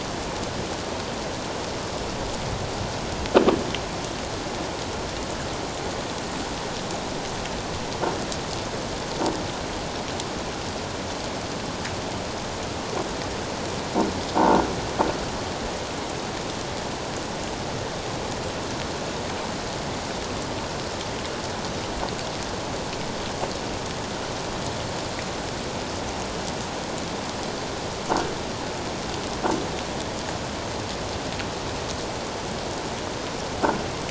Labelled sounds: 14.4	14.6	croaking sound likely from a nearby submerged object, 0.84 to 1.1 kHz

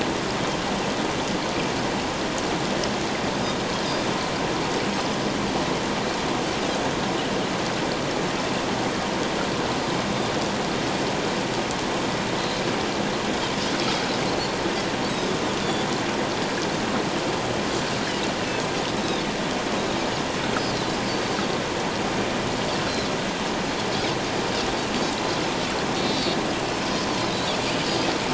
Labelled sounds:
19.0	19.2	Pacific white-sided dolphin, 3.4 to 4.0 kHz
20.6	21.0	Pacific white-sided dolphin, 3.8 to 4.7 kHz
26.0	26.4	Pacific white-sided dolphin, 3.5 to 4.7 kHz
27.1	27.5	Pacific white-sided dolphin, 3.8 to 4.7 kHz

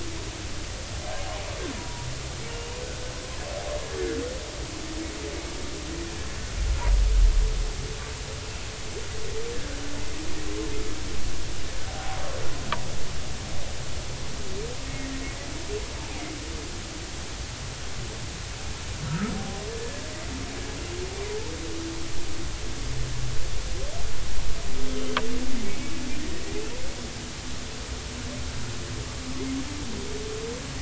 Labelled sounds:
1.8	2.1	humpback whale, 0.90 to 1.0 kHz
11.9	12.2	humpback whale, 0.80 to 0.86 kHz
14.8	15.1	humpback whale, 2.1 to 2.2 kHz
19.1	20.0	humpback whale, 0.80 to 1.8 kHz
24.9	25.2	humpback whale, 3.0 to 3.2 kHz

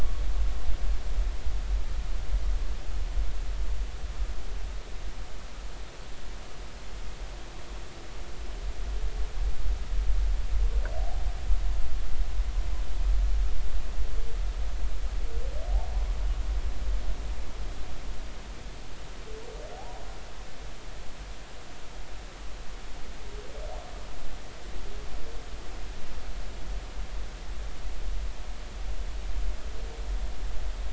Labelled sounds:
19.8	20.0	humpback whale, 0.80 to 1.0 kHz

